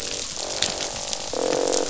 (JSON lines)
{"label": "biophony, croak", "recorder": "SoundTrap 500"}